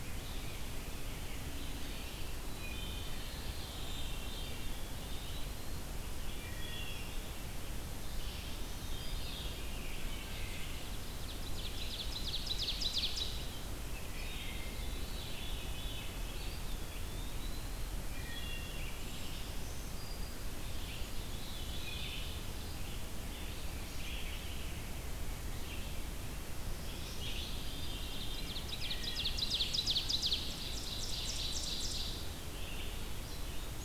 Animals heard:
Veery (Catharus fuscescens), Black-throated Green Warbler (Setophaga virens), Ovenbird (Seiurus aurocapilla), Eastern Wood-Pewee (Contopus virens), Red-eyed Vireo (Vireo olivaceus), Wood Thrush (Hylocichla mustelina)

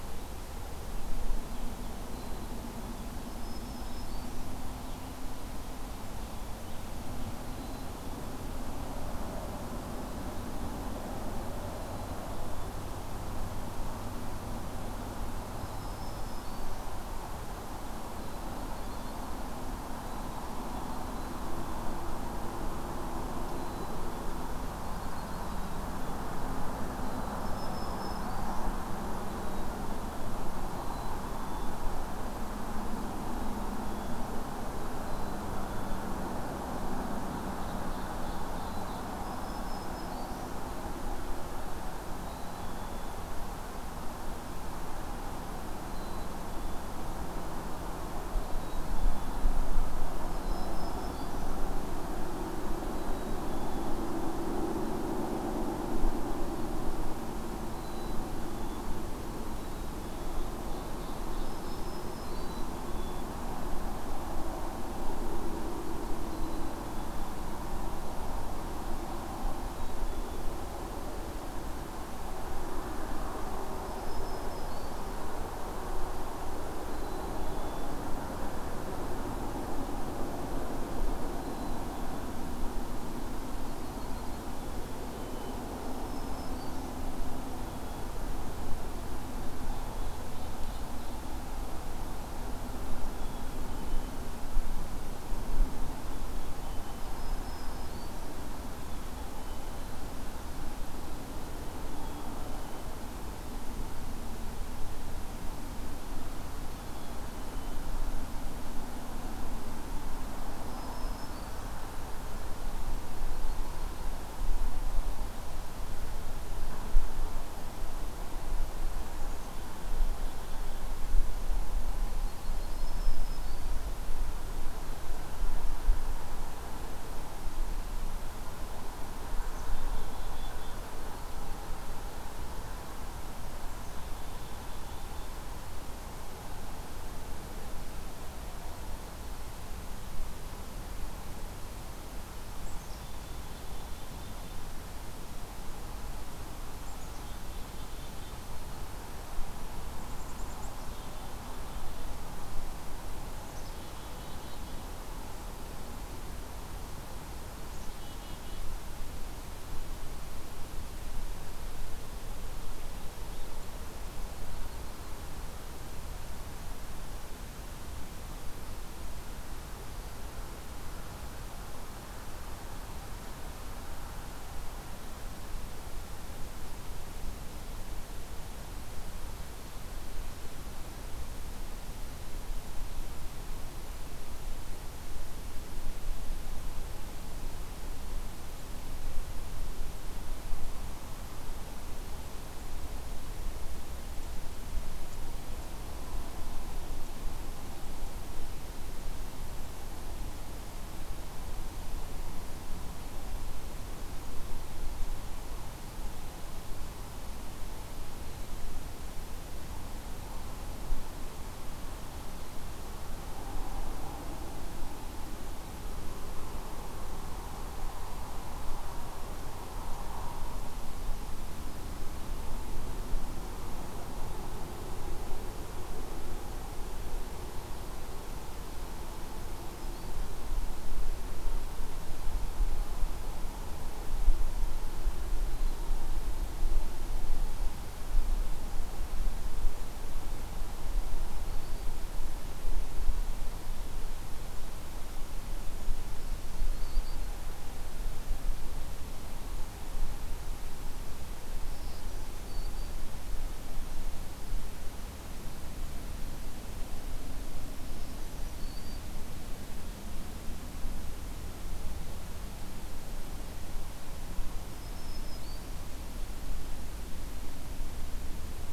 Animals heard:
Black-capped Chickadee (Poecile atricapillus), Yellow-rumped Warbler (Setophaga coronata), Ovenbird (Seiurus aurocapilla), Blue-headed Vireo (Vireo solitarius), Black-throated Green Warbler (Setophaga virens)

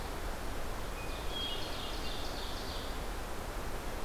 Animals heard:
Ovenbird (Seiurus aurocapilla), Hermit Thrush (Catharus guttatus)

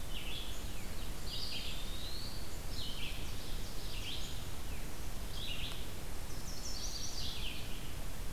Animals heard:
Red-eyed Vireo (Vireo olivaceus), Ovenbird (Seiurus aurocapilla), Eastern Wood-Pewee (Contopus virens), Chestnut-sided Warbler (Setophaga pensylvanica)

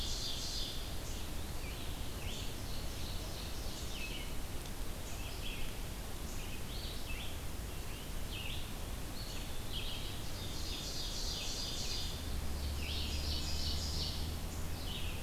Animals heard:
Red-eyed Vireo (Vireo olivaceus), Eastern Wood-Pewee (Contopus virens), Ovenbird (Seiurus aurocapilla)

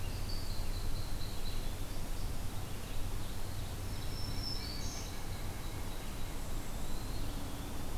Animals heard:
unidentified call, Black-throated Green Warbler (Setophaga virens), Eastern Wood-Pewee (Contopus virens), White-breasted Nuthatch (Sitta carolinensis)

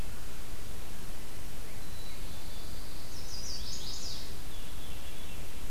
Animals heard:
Black-capped Chickadee (Poecile atricapillus), Veery (Catharus fuscescens), Pine Warbler (Setophaga pinus), Chestnut-sided Warbler (Setophaga pensylvanica)

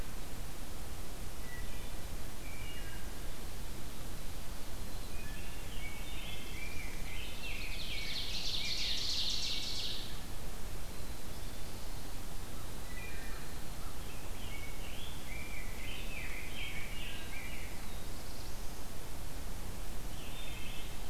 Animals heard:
Wood Thrush (Hylocichla mustelina), Ovenbird (Seiurus aurocapilla), Black-throated Blue Warbler (Setophaga caerulescens), Rose-breasted Grosbeak (Pheucticus ludovicianus), Black-capped Chickadee (Poecile atricapillus)

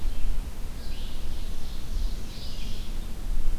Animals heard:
Red-eyed Vireo (Vireo olivaceus), Ovenbird (Seiurus aurocapilla)

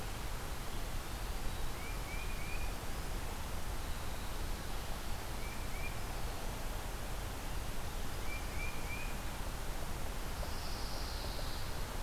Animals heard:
Winter Wren (Troglodytes hiemalis), Tufted Titmouse (Baeolophus bicolor), Pine Warbler (Setophaga pinus)

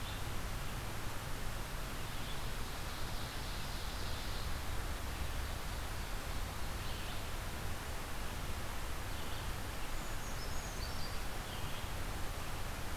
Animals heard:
Ovenbird (Seiurus aurocapilla), Red-eyed Vireo (Vireo olivaceus), Brown Creeper (Certhia americana)

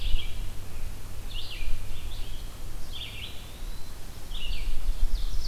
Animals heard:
Eastern Wood-Pewee (Contopus virens), Ovenbird (Seiurus aurocapilla), Red-eyed Vireo (Vireo olivaceus)

